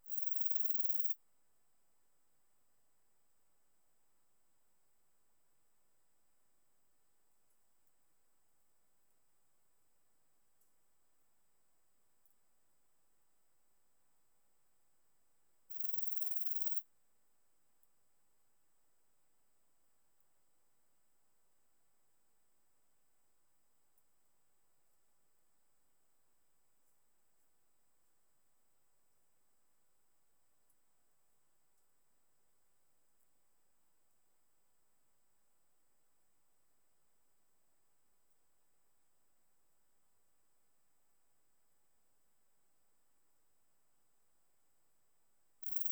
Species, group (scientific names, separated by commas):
Leptophyes punctatissima, Orthoptera